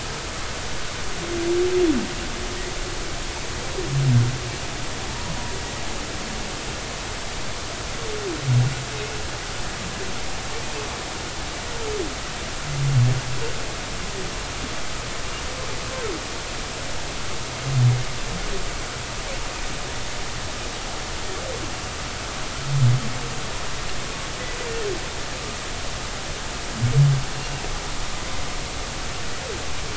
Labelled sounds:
5.1	5.3	humpback whale, 0.83 to 0.99 kHz
27.4	27.6	humpback whale, 2.6 to 2.9 kHz

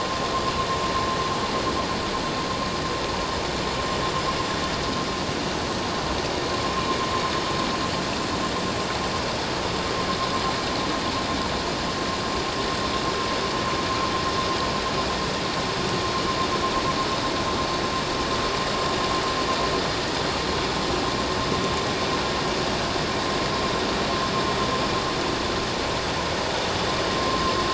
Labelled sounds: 27.3	27.5	vessel noise, 1.0 to 1.1 kHz

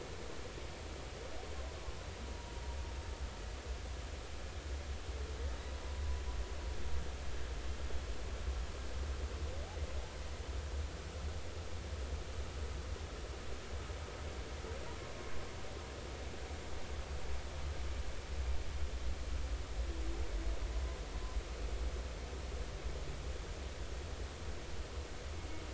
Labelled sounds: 5.7	6.0	humpback whale, 0.96 to 1.1 kHz

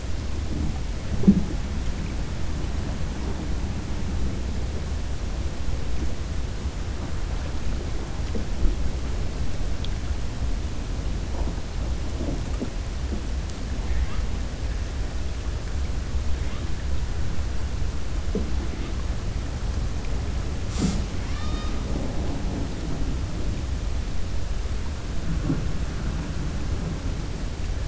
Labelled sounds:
21.1	21.8	killer whale, 0.84 to 6.2 kHz

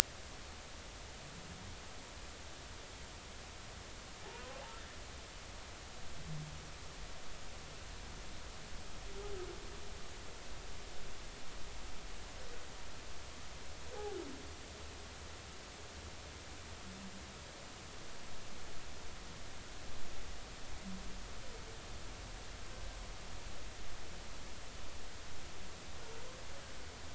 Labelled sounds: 4.2	4.5	humpback whale, 0.80 to 1.1 kHz

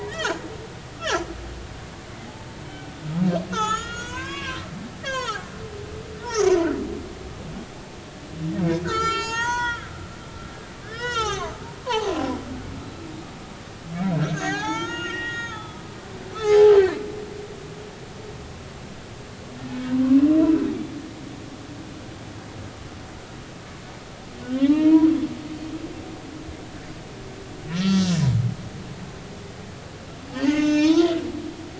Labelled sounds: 0.1	0.4	humpback whale, 1.2 to 3.3 kHz
3.5	5.5	humpback whale, 0.80 to 7.1 kHz
6.2	6.5	humpback whale, 1.1 to 6.8 kHz
8.8	12.3	humpback whale, 0.80 to 8.0 kHz
14.1	15.9	humpback whale, 0.80 to 6.9 kHz
16.4	16.7	humpback whale, 0.80 to 1.8 kHz
20.0	20.6	humpback whale, 2.5 to 2.8 kHz
24.7	25.1	humpback whale, 0.86 to 2.6 kHz
27.7	28.1	humpback whale, 1.3 to 3.5 kHz
30.4	31.2	humpback whale, 0.86 to 6.7 kHz

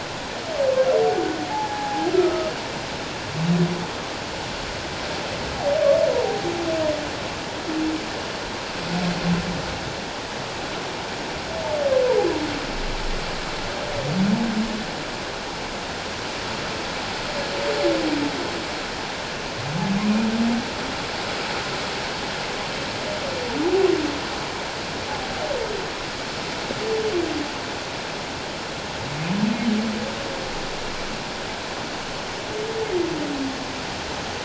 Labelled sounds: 1.5	2.5	humpback whale, 0.78 to 1.4 kHz
6.2	6.5	humpback whale, 0.78 to 0.84 kHz

